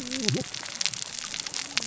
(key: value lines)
label: biophony, cascading saw
recorder: SoundTrap 600 or HydroMoth